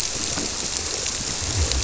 {"label": "biophony", "recorder": "SoundTrap 300"}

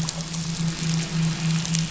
{"label": "anthrophony, boat engine", "recorder": "SoundTrap 500"}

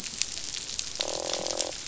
{"label": "biophony, croak", "recorder": "SoundTrap 500"}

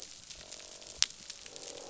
{"label": "biophony, croak", "recorder": "SoundTrap 500"}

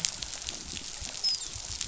{"label": "biophony, dolphin", "recorder": "SoundTrap 500"}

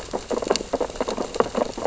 {"label": "biophony, sea urchins (Echinidae)", "recorder": "SoundTrap 600 or HydroMoth"}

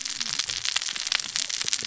{"label": "biophony, cascading saw", "recorder": "SoundTrap 600 or HydroMoth"}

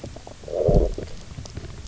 {"label": "biophony, low growl", "recorder": "SoundTrap 300"}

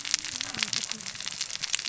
{"label": "biophony, cascading saw", "recorder": "SoundTrap 600 or HydroMoth"}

